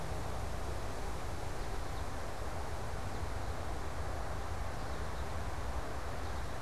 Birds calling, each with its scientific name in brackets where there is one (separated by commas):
American Goldfinch (Spinus tristis)